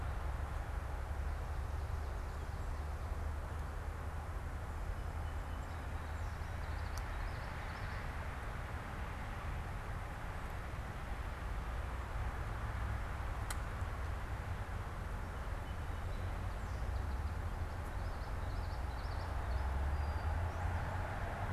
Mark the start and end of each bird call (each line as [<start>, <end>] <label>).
[6.54, 8.24] Common Yellowthroat (Geothlypis trichas)
[17.74, 19.34] Common Yellowthroat (Geothlypis trichas)
[19.44, 20.44] Brown-headed Cowbird (Molothrus ater)